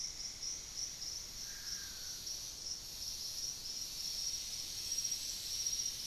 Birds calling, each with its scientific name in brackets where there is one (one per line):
Golden-green Woodpecker (Piculus chrysochloros)